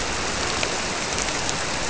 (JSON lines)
{"label": "biophony", "recorder": "SoundTrap 300"}